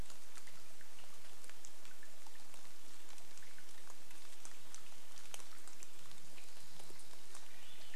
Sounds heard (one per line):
Swainson's Thrush song
rain